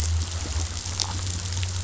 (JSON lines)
{"label": "anthrophony, boat engine", "recorder": "SoundTrap 500"}